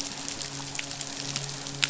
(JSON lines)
{"label": "biophony, midshipman", "recorder": "SoundTrap 500"}